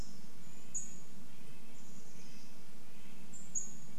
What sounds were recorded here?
Chestnut-backed Chickadee call, Pacific-slope Flycatcher call, Red-breasted Nuthatch song, insect buzz